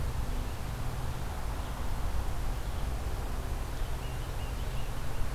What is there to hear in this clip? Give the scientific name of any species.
Baeolophus bicolor